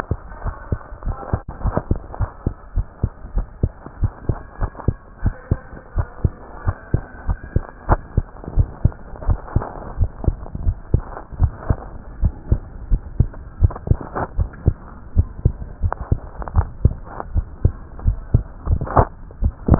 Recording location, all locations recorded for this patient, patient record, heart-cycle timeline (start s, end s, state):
tricuspid valve (TV)
aortic valve (AV)+pulmonary valve (PV)+tricuspid valve (TV)+mitral valve (MV)
#Age: Child
#Sex: Male
#Height: 114.0 cm
#Weight: 19.6 kg
#Pregnancy status: False
#Murmur: Absent
#Murmur locations: nan
#Most audible location: nan
#Systolic murmur timing: nan
#Systolic murmur shape: nan
#Systolic murmur grading: nan
#Systolic murmur pitch: nan
#Systolic murmur quality: nan
#Diastolic murmur timing: nan
#Diastolic murmur shape: nan
#Diastolic murmur grading: nan
#Diastolic murmur pitch: nan
#Diastolic murmur quality: nan
#Outcome: Normal
#Campaign: 2015 screening campaign
0.00	2.54	unannotated
2.54	2.74	diastole
2.74	2.86	S1
2.86	3.00	systole
3.00	3.10	S2
3.10	3.36	diastole
3.36	3.48	S1
3.48	3.60	systole
3.60	3.70	S2
3.70	4.00	diastole
4.00	4.12	S1
4.12	4.28	systole
4.28	4.36	S2
4.36	4.62	diastole
4.62	4.72	S1
4.72	4.84	systole
4.84	4.96	S2
4.96	5.24	diastole
5.24	5.34	S1
5.34	5.50	systole
5.50	5.60	S2
5.60	5.94	diastole
5.94	6.06	S1
6.06	6.20	systole
6.20	6.32	S2
6.32	6.66	diastole
6.66	6.76	S1
6.76	6.90	systole
6.90	7.02	S2
7.02	7.28	diastole
7.28	7.38	S1
7.38	7.52	systole
7.52	7.64	S2
7.64	7.90	diastole
7.90	8.00	S1
8.00	8.16	systole
8.16	8.26	S2
8.26	8.54	diastole
8.54	8.68	S1
8.68	8.80	systole
8.80	8.92	S2
8.92	9.26	diastole
9.26	9.40	S1
9.40	9.54	systole
9.54	9.66	S2
9.66	9.96	diastole
9.96	10.10	S1
10.10	10.26	systole
10.26	10.36	S2
10.36	10.62	diastole
10.62	10.76	S1
10.76	10.92	systole
10.92	11.06	S2
11.06	11.38	diastole
11.38	11.52	S1
11.52	11.68	systole
11.68	11.82	S2
11.82	12.20	diastole
12.20	12.34	S1
12.34	12.48	systole
12.48	12.64	S2
12.64	12.90	diastole
12.90	13.02	S1
13.02	13.18	systole
13.18	13.32	S2
13.32	13.62	diastole
13.62	13.76	S1
13.76	13.90	systole
13.90	14.02	S2
14.02	14.36	diastole
14.36	14.50	S1
14.50	14.66	systole
14.66	14.80	S2
14.80	15.16	diastole
15.16	15.28	S1
15.28	15.40	systole
15.40	15.52	S2
15.52	15.82	diastole
15.82	15.94	S1
15.94	16.10	systole
16.10	16.24	S2
16.24	16.52	diastole
16.52	16.68	S1
16.68	16.82	systole
16.82	16.98	S2
16.98	17.32	diastole
17.32	17.46	S1
17.46	17.60	systole
17.60	17.76	S2
17.76	18.04	diastole
18.04	18.18	S1
18.18	18.30	systole
18.30	18.42	S2
18.42	18.60	diastole
18.60	19.79	unannotated